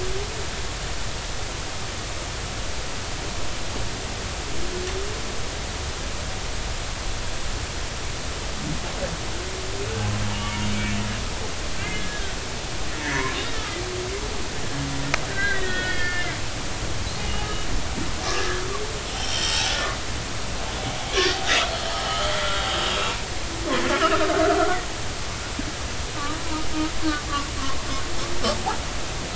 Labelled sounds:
10.3	11.0	humpback whale, 2.2 to 3.0 kHz
11.7	12.3	humpback whale, 1.5 to 2.2 kHz
13.0	13.8	humpback whale, 0.93 to 2.3 kHz
15.3	16.4	humpback whale, 1.4 to 4.8 kHz
17.2	17.5	humpback whale, 2.8 to 3.0 kHz
18.3	21.4	humpback whale, 1.5 to 3.9 kHz
21.9	23.2	humpback whale, 1.2 to 3.4 kHz
23.7	24.8	humpback whale, 1.2 to 1.8 kHz

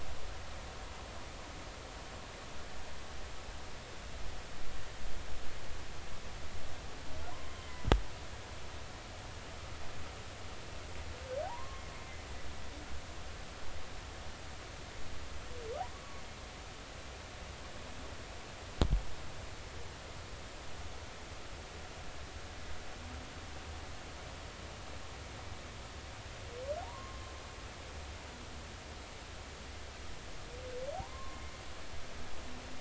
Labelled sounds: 7.3	7.9	humpback whale, 0.96 to 2.1 kHz
11.4	11.8	humpback whale, 0.80 to 1.2 kHz
26.8	27.2	humpback whale, 0.80 to 1.2 kHz
30.9	31.4	humpback whale, 0.80 to 1.2 kHz

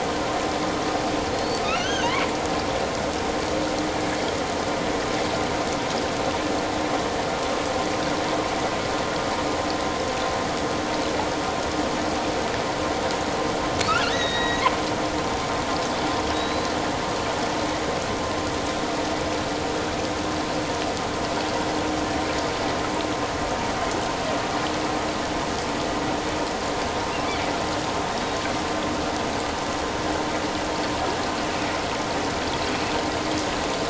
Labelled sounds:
1.3	2.2	killer whale, offshore, 1.2 to 6.4 kHz
13.9	14.7	killer whale, offshore, 1.1 to 4.1 kHz
16.3	16.7	killer whale, offshore, 3.7 to 4.1 kHz

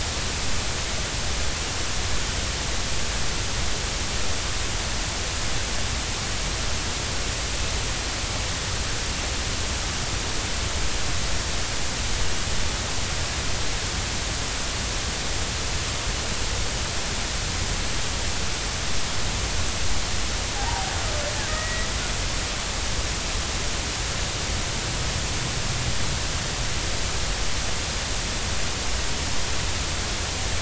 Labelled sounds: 20.6	21.9	killer whale, Bigg's (transient), 0.80 to 2.0 kHz

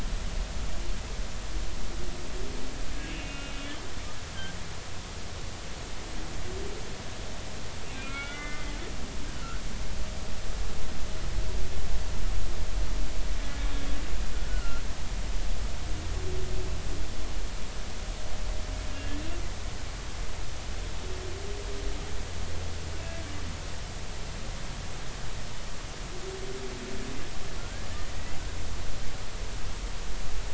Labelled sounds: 3.0	3.5	humpback whale, 1.3 to 2.8 kHz
7.9	8.7	humpback whale, 1.2 to 3.6 kHz
9.4	9.6	humpback whale, 1.2 to 1.6 kHz
13.7	14.8	humpback whale, 1.3 to 3.4 kHz
18.9	19.2	humpback whale, 1.6 to 1.8 kHz
27.6	27.9	humpback whale, 1.3 to 1.7 kHz

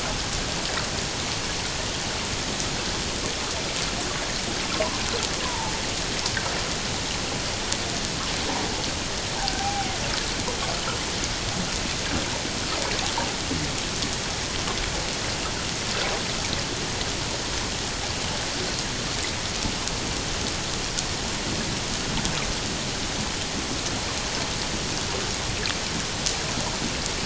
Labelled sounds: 4.6	5.7	killer whale, Bigg's (transient), 0.81 to 1.1 kHz
9.4	9.9	killer whale, Bigg's (transient), 0.78 to 1.8 kHz

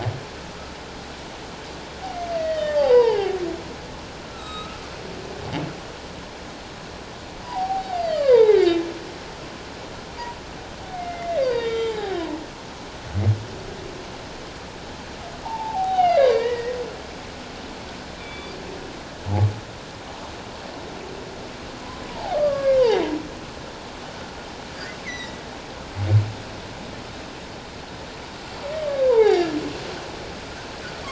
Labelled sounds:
2.3	3.4	humpback whale, 0.78 to 5.0 kHz
4.2	4.8	humpback whale, 1.2 to 7.7 kHz
7.4	8.8	humpback whale, 0.78 to 5.0 kHz
10.9	12.2	humpback whale, 0.78 to 6.0 kHz
15.4	16.8	humpback whale, 0.78 to 5.0 kHz
18.2	18.6	humpback whale, 2.2 to 3.6 kHz
22.1	22.8	humpback whale, 0.78 to 1.7 kHz
25.0	25.4	humpback whale, 1.8 to 6.1 kHz
29.1	29.6	humpback whale, 0.78 to 4.0 kHz

